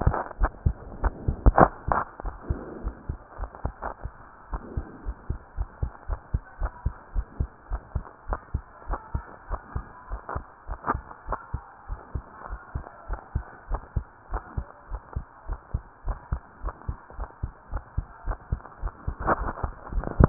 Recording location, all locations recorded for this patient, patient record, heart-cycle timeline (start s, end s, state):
pulmonary valve (PV)
aortic valve (AV)+pulmonary valve (PV)+tricuspid valve (TV)+mitral valve (MV)
#Age: Child
#Sex: Female
#Height: 124.0 cm
#Weight: 21.3 kg
#Pregnancy status: False
#Murmur: Absent
#Murmur locations: nan
#Most audible location: nan
#Systolic murmur timing: nan
#Systolic murmur shape: nan
#Systolic murmur grading: nan
#Systolic murmur pitch: nan
#Systolic murmur quality: nan
#Diastolic murmur timing: nan
#Diastolic murmur shape: nan
#Diastolic murmur grading: nan
#Diastolic murmur pitch: nan
#Diastolic murmur quality: nan
#Outcome: Normal
#Campaign: 2015 screening campaign
0.00	4.50	unannotated
4.50	4.62	S1
4.62	4.76	systole
4.76	4.86	S2
4.86	5.06	diastole
5.06	5.18	S1
5.18	5.28	systole
5.28	5.38	S2
5.38	5.56	diastole
5.56	5.68	S1
5.68	5.78	systole
5.78	5.90	S2
5.90	6.08	diastole
6.08	6.20	S1
6.20	6.30	systole
6.30	6.42	S2
6.42	6.60	diastole
6.60	6.72	S1
6.72	6.82	systole
6.82	6.94	S2
6.94	7.14	diastole
7.14	7.26	S1
7.26	7.36	systole
7.36	7.48	S2
7.48	7.70	diastole
7.70	7.82	S1
7.82	7.94	systole
7.94	8.04	S2
8.04	8.28	diastole
8.28	8.40	S1
8.40	8.50	systole
8.50	8.64	S2
8.64	8.88	diastole
8.88	9.00	S1
9.00	9.14	systole
9.14	9.24	S2
9.24	9.50	diastole
9.50	9.60	S1
9.60	9.74	systole
9.74	9.86	S2
9.86	10.10	diastole
10.10	10.20	S1
10.20	10.34	systole
10.34	10.42	S2
10.42	10.68	diastole
10.68	10.78	S1
10.78	10.90	systole
10.90	11.04	S2
11.04	11.28	diastole
11.28	11.38	S1
11.38	11.53	systole
11.53	11.64	S2
11.64	11.87	diastole
11.87	12.00	S1
12.00	12.13	systole
12.13	12.26	S2
12.26	12.50	diastole
12.50	12.60	S1
12.60	12.74	systole
12.74	12.86	S2
12.86	13.10	diastole
13.10	13.20	S1
13.20	13.32	systole
13.32	13.46	S2
13.46	13.70	diastole
13.70	13.82	S1
13.82	13.94	systole
13.94	14.08	S2
14.08	14.30	diastole
14.30	14.42	S1
14.42	14.56	systole
14.56	14.68	S2
14.68	14.90	diastole
14.90	15.00	S1
15.00	15.12	systole
15.12	15.24	S2
15.24	15.48	diastole
15.48	15.58	S1
15.58	15.70	systole
15.70	15.82	S2
15.82	16.06	diastole
16.06	16.18	S1
16.18	16.28	systole
16.28	16.40	S2
16.40	16.64	diastole
16.64	16.74	S1
16.74	16.86	systole
16.86	16.96	S2
16.96	17.16	diastole
17.16	17.28	S1
17.28	17.42	systole
17.42	17.52	S2
17.52	17.72	diastole
17.72	17.82	S1
17.82	17.94	systole
17.94	18.06	S2
18.06	18.26	diastole
18.26	18.38	S1
18.38	18.50	systole
18.50	18.60	S2
18.60	18.82	diastole
18.82	18.92	S1
18.92	20.29	unannotated